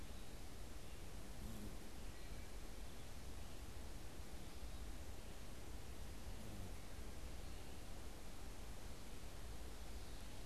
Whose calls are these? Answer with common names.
Wood Thrush